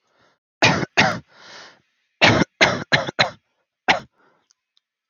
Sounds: Cough